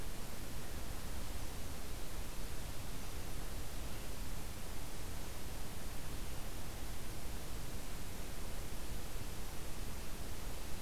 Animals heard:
forest ambience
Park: Katahdin Woods and Waters National Monument